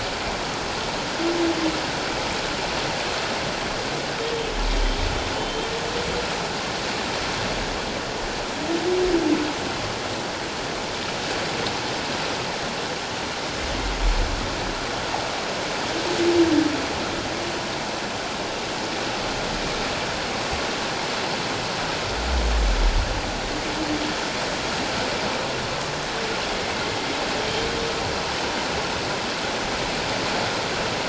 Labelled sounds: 5.4	5.7	humpback whale, 2.8 to 3.2 kHz

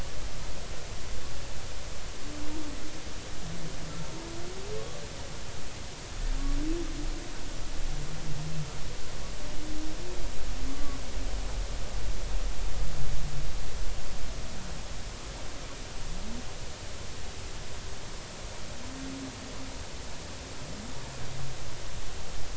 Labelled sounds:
10.7	11.0	humpback whale, 1.1 to 1.2 kHz

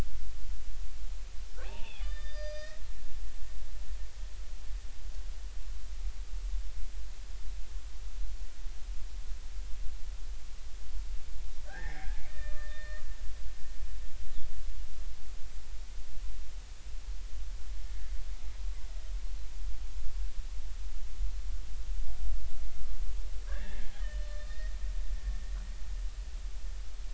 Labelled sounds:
1.6	2.8	killer whale, Bigg's (transient), 0.80 to 6.1 kHz
11.6	13.0	killer whale, Bigg's (transient), 0.80 to 3.7 kHz
23.5	25.6	killer whale, Bigg's (transient), 1.1 to 4.4 kHz

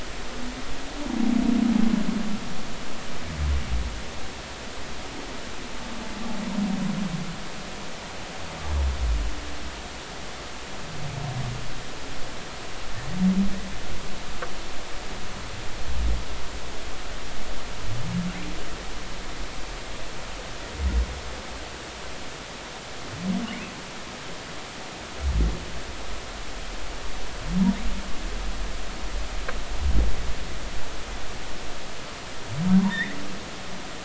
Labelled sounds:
32.8	33.2	humpback whale, 1.7 to 3.8 kHz

